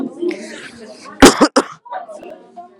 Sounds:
Cough